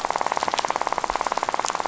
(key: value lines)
label: biophony, rattle
recorder: SoundTrap 500